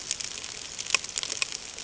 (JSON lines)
{"label": "ambient", "recorder": "HydroMoth"}